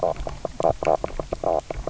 {"label": "biophony, knock croak", "recorder": "SoundTrap 300"}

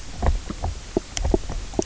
{"label": "biophony, knock croak", "recorder": "SoundTrap 300"}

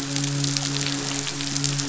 {"label": "biophony, midshipman", "recorder": "SoundTrap 500"}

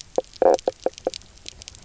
{"label": "biophony, knock croak", "recorder": "SoundTrap 300"}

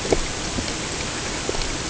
{"label": "ambient", "recorder": "HydroMoth"}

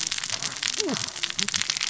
{"label": "biophony, cascading saw", "recorder": "SoundTrap 600 or HydroMoth"}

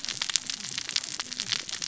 {"label": "biophony, cascading saw", "recorder": "SoundTrap 600 or HydroMoth"}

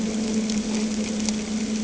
{"label": "anthrophony, boat engine", "recorder": "HydroMoth"}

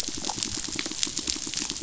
{"label": "biophony", "recorder": "SoundTrap 500"}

